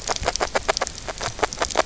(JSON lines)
{"label": "biophony, grazing", "recorder": "SoundTrap 300"}